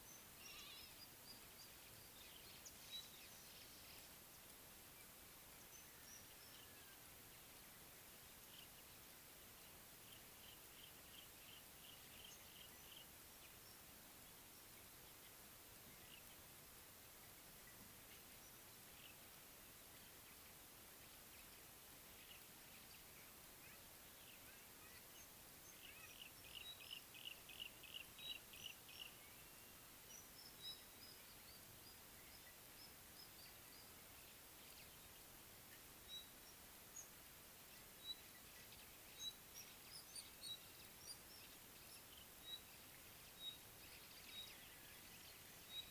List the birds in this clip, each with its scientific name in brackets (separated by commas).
Pygmy Batis (Batis perkeo), Rufous Chatterer (Argya rubiginosa), Yellow-breasted Apalis (Apalis flavida)